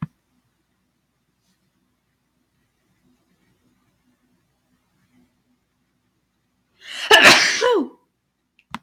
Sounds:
Sneeze